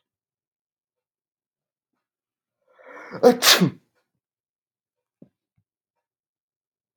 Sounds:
Sneeze